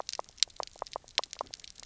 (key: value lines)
label: biophony, knock croak
recorder: SoundTrap 300